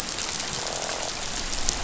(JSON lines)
{"label": "biophony, croak", "recorder": "SoundTrap 500"}